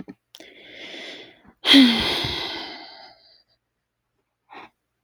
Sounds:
Sigh